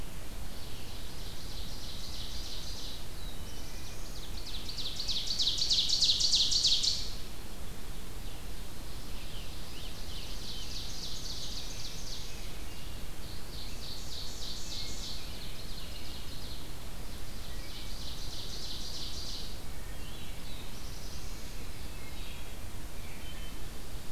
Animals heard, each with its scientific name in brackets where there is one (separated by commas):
Ovenbird (Seiurus aurocapilla), Scarlet Tanager (Piranga olivacea), Wood Thrush (Hylocichla mustelina), American Robin (Turdus migratorius), Black-throated Blue Warbler (Setophaga caerulescens)